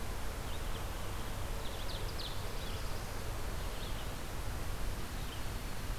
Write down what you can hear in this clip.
Red-eyed Vireo, Ovenbird, Black-throated Blue Warbler